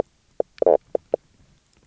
{"label": "biophony, knock croak", "recorder": "SoundTrap 300"}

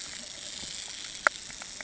{"label": "anthrophony, boat engine", "recorder": "HydroMoth"}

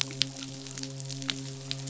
{"label": "biophony, midshipman", "recorder": "SoundTrap 500"}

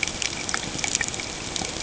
{"label": "ambient", "recorder": "HydroMoth"}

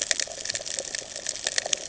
{"label": "ambient", "recorder": "HydroMoth"}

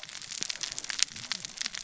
{"label": "biophony, cascading saw", "recorder": "SoundTrap 600 or HydroMoth"}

